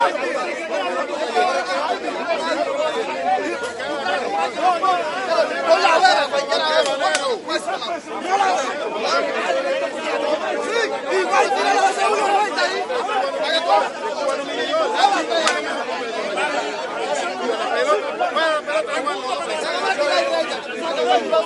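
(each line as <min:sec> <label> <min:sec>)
0:00.0 People are discussing and shouting about an event. 0:21.5
0:05.5 A man is shouting in Spanish. 0:07.3
0:15.3 A high-pitched snapping sound. 0:15.8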